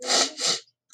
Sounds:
Sniff